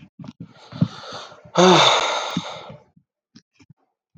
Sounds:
Sigh